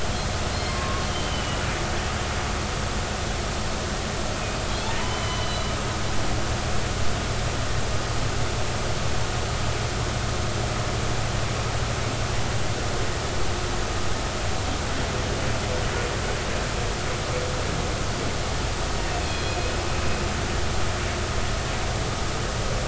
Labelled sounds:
0.5	1.6	humpback whale, 1.0 to 4.4 kHz
5.0	5.7	humpback whale, 2.9 to 4.1 kHz
19.2	19.7	humpback whale, 2.4 to 4.3 kHz

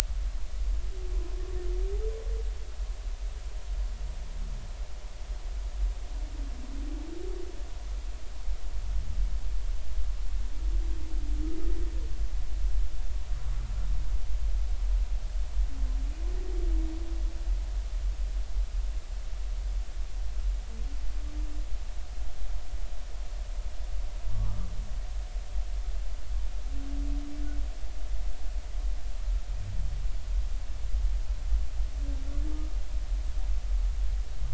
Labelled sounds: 24.3	24.6	humpback whale, 1.1 to 1.3 kHz

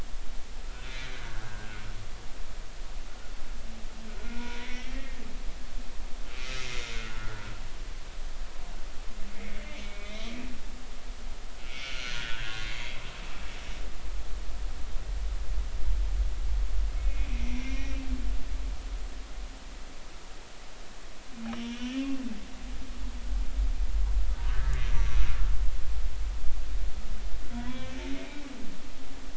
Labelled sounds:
1.3	1.7	humpback whale, 1.3 to 1.7 kHz
3.1	3.3	humpback whale, 1.4 to 1.5 kHz
4.2	5.2	humpback whale, 0.90 to 2.4 kHz
6.4	7.4	humpback whale, 1.3 to 2.6 kHz
9.3	10.2	humpback whale, 2.0 to 2.5 kHz
11.7	13.0	humpback whale, 1.3 to 4.3 kHz
17.0	17.9	humpback whale, 2.0 to 2.6 kHz
21.5	22.0	humpback whale, 2.3 to 3.5 kHz
24.4	24.8	humpback whale, 1.5 to 1.9 kHz
27.5	27.9	humpback whale, 0.90 to 3.4 kHz

